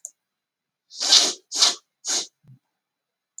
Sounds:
Sniff